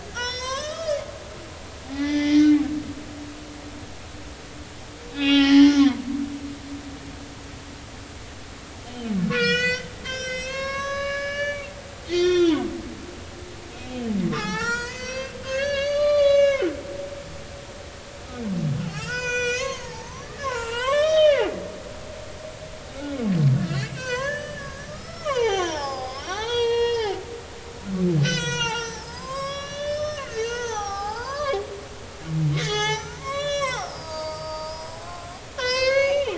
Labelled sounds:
0.1	1.0	humpback whale, 0.93 to 8.0 kHz
1.9	2.6	humpback whale, 0.80 to 5.0 kHz
5.1	5.8	humpback whale, 0.80 to 3.8 kHz
8.8	11.7	humpback whale, 1.0 to 7.8 kHz
12.0	12.6	humpback whale, 1.0 to 5.8 kHz
13.8	16.7	humpback whale, 0.80 to 7.8 kHz
18.8	21.5	humpback whale, 0.80 to 8.0 kHz
23.6	27.1	humpback whale, 0.80 to 6.4 kHz
28.2	36.3	humpback whale, 0.80 to 8.0 kHz

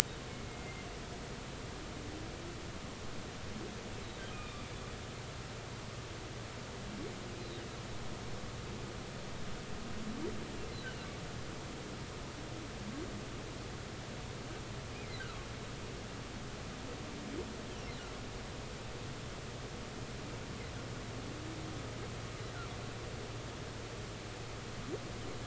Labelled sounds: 0.5	0.9	humpback whale, 2.0 to 2.2 kHz
4.3	4.6	humpback whale, 2.3 to 2.6 kHz
7.4	7.6	humpback whale, 3.7 to 4.1 kHz

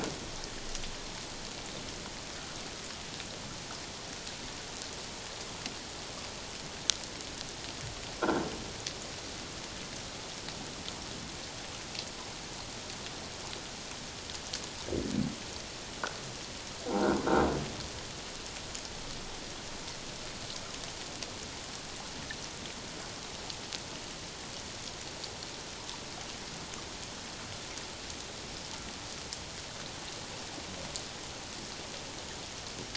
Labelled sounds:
8.2	8.5	croaking sound likely from a nearby submerged object, 1.3 to 1.7 kHz
16.9	17.2	croaking sound likely from a nearby submerged object, 1.3 to 1.6 kHz

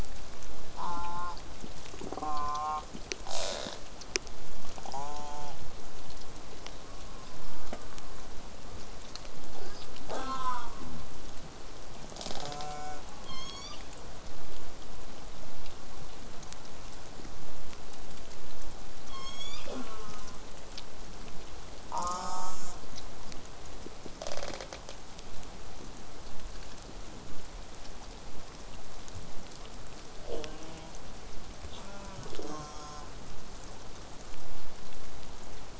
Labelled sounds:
0.7	1.4	killer whale, southern resident, J pod, call S04, 0.46 to 8.0 kHz
2.2	2.8	killer whale, southern resident, J pod, call S04, 0.27 to 8.0 kHz
3.3	3.8	killer whale, southern resident, rasp, 0.15 to 8.0 kHz
4.9	5.6	killer whale, southern resident, J pod, call S04, 0.12 to 8.0 kHz
6.7	8.2	killer whale, southern resident, 0.60 to 1.3 kHz
9.5	9.9	killer whale, southern resident, J pod, call S05, 0.19 to 8.0 kHz
10.1	10.9	killer whale, southern resident, J pod, call S04, 0.19 to 8.0 kHz
12.1	12.7	killer whale, southern resident, rasp, 0.12 to 8.0 kHz
12.4	13.0	killer whale, southern resident, J pod, call S04, 0.19 to 8.0 kHz
13.3	14.2	killer whale, southern resident, call S01, 0.80 to 8.0 kHz
19.1	20.0	killer whale, southern resident, call S01, 0.15 to 8.0 kHz
19.7	20.4	killer whale, southern resident, J pod, call S04, 0.08 to 8.0 kHz
21.9	22.8	killer whale, southern resident, J pod, call S04, 0.23 to 8.0 kHz
24.2	24.9	killer whale, southern resident, rasp, 0.19 to 8.0 kHz
30.3	30.9	killer whale, southern resident, J pod, call S04, 0.19 to 8.0 kHz
31.7	33.1	killer whale, southern resident, J pod, call S04, 0.12 to 8.0 kHz

